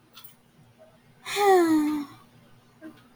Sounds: Sigh